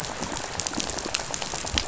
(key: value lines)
label: biophony, rattle
recorder: SoundTrap 500